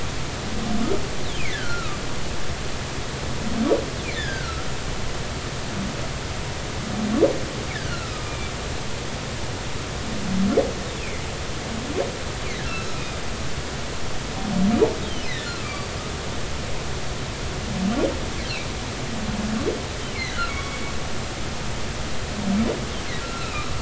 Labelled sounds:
1.5	2.0	humpback whale, 1.1 to 1.8 kHz
4.1	4.7	humpback whale, 1.2 to 5.2 kHz
7.7	8.5	humpback whale, 1.3 to 2.5 kHz
11.0	11.2	humpback whale, 2.0 to 2.8 kHz
12.7	13.0	humpback whale, 3.9 to 4.1 kHz
15.4	15.9	humpback whale, 1.1 to 4.7 kHz
20.5	20.8	humpback whale, 2.1 to 2.3 kHz
23.2	23.7	humpback whale, 1.2 to 4.1 kHz

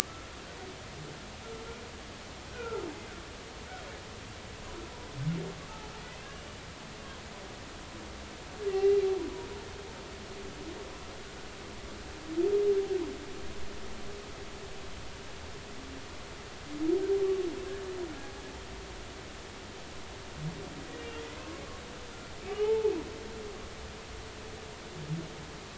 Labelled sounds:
2.5	2.8	humpback whale, 1.3 to 1.6 kHz
6.3	6.6	humpback whale, 2.8 to 3.0 kHz
8.7	9.0	humpback whale, 1.9 to 2.8 kHz
22.6	22.9	humpback whale, 0.80 to 0.93 kHz

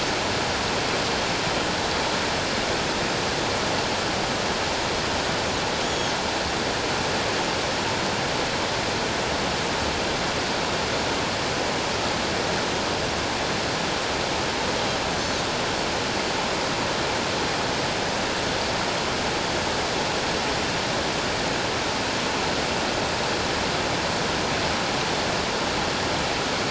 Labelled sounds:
5.8	6.1	Pacific white-sided dolphin, 3.2 to 6.8 kHz

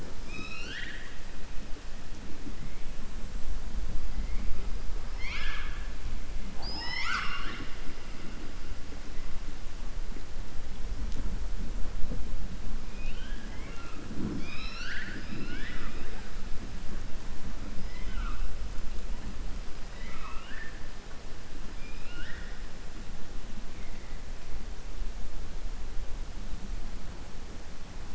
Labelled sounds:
0.1	1.2	killer whale, southern resident, 0.42 to 6.4 kHz
5.1	5.8	killer whale, southern resident, 1.1 to 6.7 kHz
12.9	14.0	killer whale, southern resident, 0.71 to 3.7 kHz
14.3	16.2	killer whale, southern resident, 0.28 to 6.0 kHz
17.8	18.4	killer whale, southern resident, 1.0 to 3.4 kHz
19.9	20.8	killer whale, southern resident, 0.95 to 5.2 kHz
21.7	22.6	killer whale, southern resident, 1.4 to 5.4 kHz

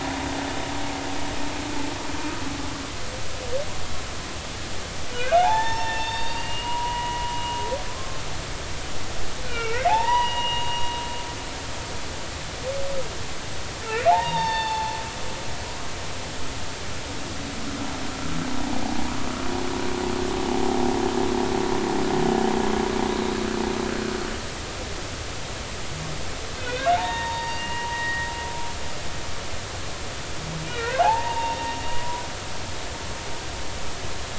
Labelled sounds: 5.3	7.3	humpback whale, 0.80 to 5.5 kHz
7.9	8.2	humpback whale, 1.0 to 1.1 kHz
9.5	10.9	humpback whale, 0.80 to 3.8 kHz
13.8	14.9	humpback whale, 0.80 to 3.8 kHz
15.3	15.8	humpback whale, 4.4 to 4.7 kHz
26.6	28.3	humpback whale, 0.83 to 4.8 kHz
30.6	31.6	humpback whale, 0.80 to 2.9 kHz
31.9	32.2	humpback whale, 0.93 to 1.0 kHz

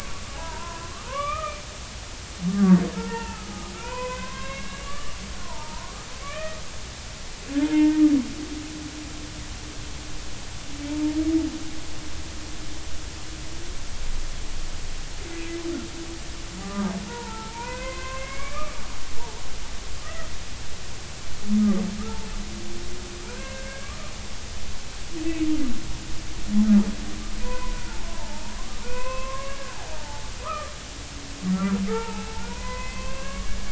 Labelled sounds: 1.1	1.6	humpback whale, 1.7 to 2.6 kHz
3.0	6.6	humpback whale, 0.80 to 3.1 kHz
7.6	8.0	humpback whale, 0.86 to 3.1 kHz
10.9	11.2	humpback whale, 0.83 to 0.96 kHz
16.6	18.8	humpback whale, 0.83 to 2.7 kHz
19.2	19.4	humpback whale, 0.80 to 0.99 kHz
23.3	23.9	humpback whale, 0.93 to 2.2 kHz
27.4	27.8	humpback whale, 0.93 to 2.6 kHz
28.1	28.4	humpback whale, 0.83 to 1.1 kHz
28.8	30.7	humpback whale, 0.80 to 2.8 kHz
31.5	33.6	humpback whale, 0.80 to 2.8 kHz

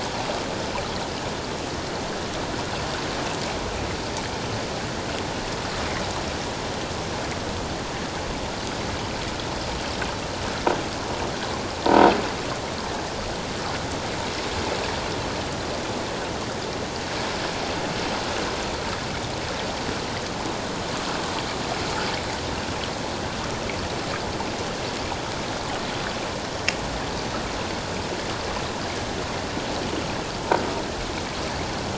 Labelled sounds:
11.8	12.1	croaking sound likely from a nearby submerged object, 0.88 to 1.0 kHz

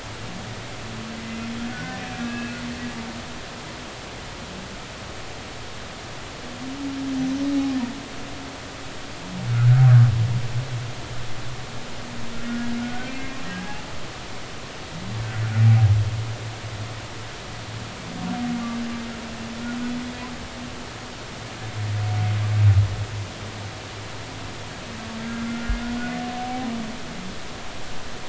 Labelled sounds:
1.7	2.6	humpback whale, 1.4 to 2.7 kHz
7.2	7.4	humpback whale, 5.9 to 6.1 kHz
9.5	9.9	humpback whale, 1.2 to 1.6 kHz
12.8	13.8	humpback whale, 0.80 to 1.6 kHz
25.2	25.8	humpback whale, 1.3 to 1.5 kHz
26.3	26.7	humpback whale, 0.80 to 0.83 kHz

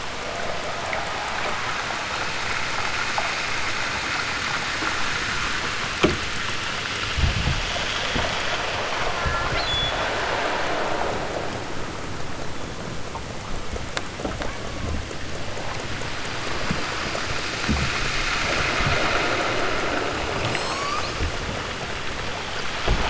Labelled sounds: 9.0	10.0	killer whale, southern Alaska resident, 0.92 to 8.0 kHz
20.3	21.3	killer whale, southern Alaska resident, 0.51 to 8.0 kHz

